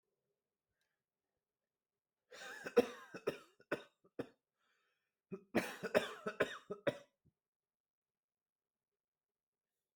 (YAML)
expert_labels:
- quality: ok
  cough_type: dry
  dyspnea: false
  wheezing: false
  stridor: false
  choking: false
  congestion: false
  nothing: true
  diagnosis: COVID-19
  severity: mild
age: 25
gender: male
respiratory_condition: false
fever_muscle_pain: false
status: healthy